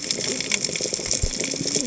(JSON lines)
{"label": "biophony, cascading saw", "recorder": "HydroMoth"}